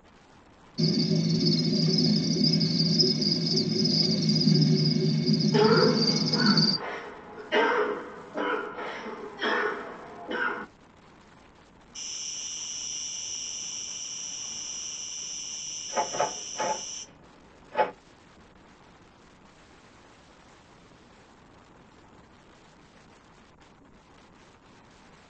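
At 0.8 seconds, a cricket can be heard. Over it, at 5.5 seconds, someone coughs. Later, at 11.9 seconds, an insect is heard. While that goes on, at 15.9 seconds, the sound of a door is audible.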